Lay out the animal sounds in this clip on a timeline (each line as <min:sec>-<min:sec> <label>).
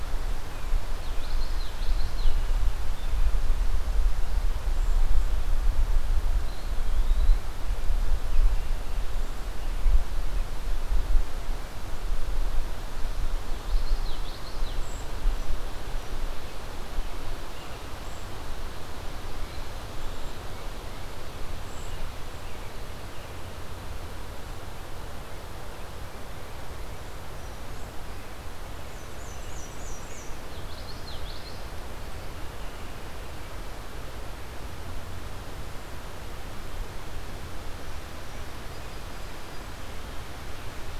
0:00.8-0:02.4 Common Yellowthroat (Geothlypis trichas)
0:06.3-0:07.4 Eastern Wood-Pewee (Contopus virens)
0:13.5-0:14.9 Common Yellowthroat (Geothlypis trichas)
0:28.7-0:30.4 Black-and-white Warbler (Mniotilta varia)
0:30.4-0:31.6 Common Yellowthroat (Geothlypis trichas)